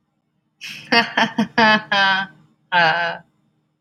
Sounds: Laughter